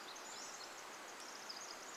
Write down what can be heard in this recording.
Pacific Wren song, Pacific-slope Flycatcher song